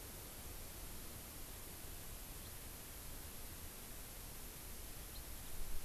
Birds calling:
House Finch (Haemorhous mexicanus)

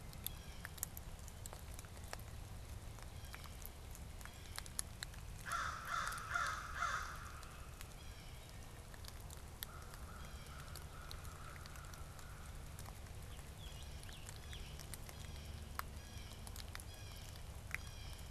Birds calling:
Blue Jay (Cyanocitta cristata), American Crow (Corvus brachyrhynchos), Scarlet Tanager (Piranga olivacea)

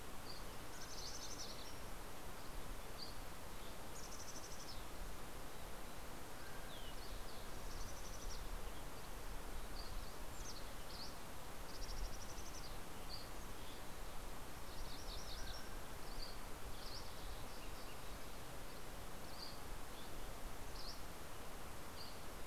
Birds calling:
Mountain Chickadee (Poecile gambeli), MacGillivray's Warbler (Geothlypis tolmiei), Mountain Quail (Oreortyx pictus), Dusky Flycatcher (Empidonax oberholseri)

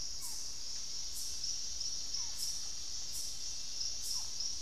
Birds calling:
Russet-backed Oropendola (Psarocolius angustifrons), Barred Forest-Falcon (Micrastur ruficollis)

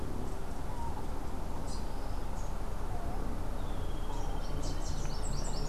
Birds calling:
Streak-headed Woodcreeper (Lepidocolaptes souleyetii), Rufous-capped Warbler (Basileuterus rufifrons)

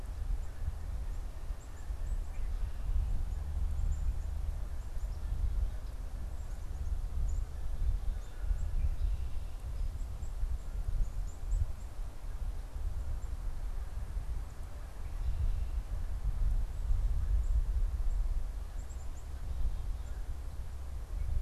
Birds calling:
Black-capped Chickadee (Poecile atricapillus), Canada Goose (Branta canadensis)

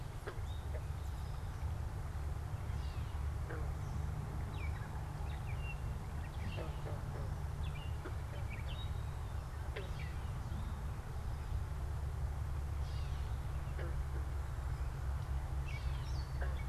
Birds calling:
Gray Catbird (Dumetella carolinensis), Eastern Towhee (Pipilo erythrophthalmus)

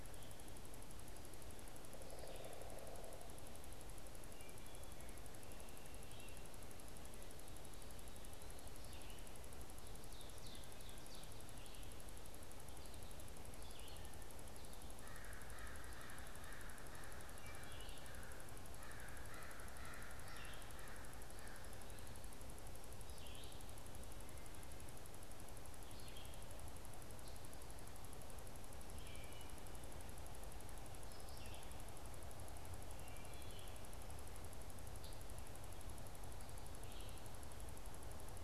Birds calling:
Red-eyed Vireo (Vireo olivaceus), American Crow (Corvus brachyrhynchos), Ovenbird (Seiurus aurocapilla)

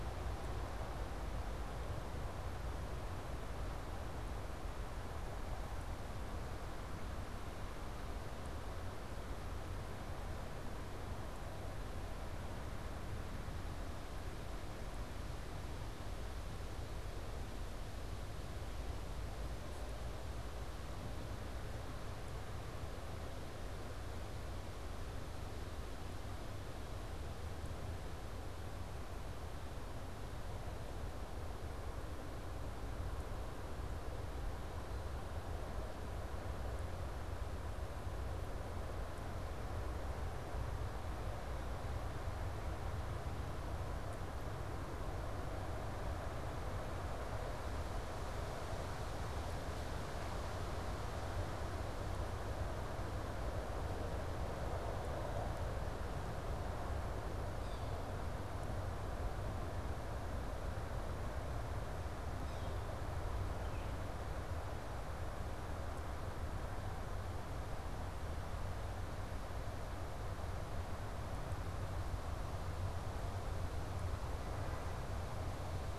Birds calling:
unidentified bird

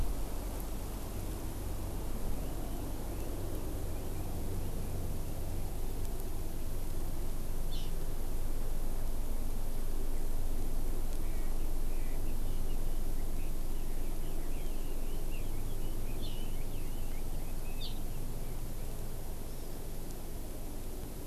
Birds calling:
Red-billed Leiothrix (Leiothrix lutea)

